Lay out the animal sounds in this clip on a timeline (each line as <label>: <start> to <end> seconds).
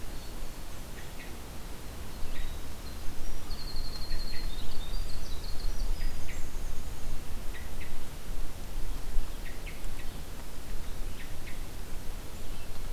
Black-throated Green Warbler (Setophaga virens): 0.0 to 0.8 seconds
Hermit Thrush (Catharus guttatus): 0.9 to 1.3 seconds
Winter Wren (Troglodytes hiemalis): 1.8 to 7.1 seconds
Hermit Thrush (Catharus guttatus): 2.2 to 2.7 seconds
Hermit Thrush (Catharus guttatus): 4.0 to 4.5 seconds
Hermit Thrush (Catharus guttatus): 5.8 to 6.5 seconds
Hermit Thrush (Catharus guttatus): 7.5 to 7.9 seconds
Hermit Thrush (Catharus guttatus): 9.4 to 10.1 seconds
Hermit Thrush (Catharus guttatus): 11.1 to 11.6 seconds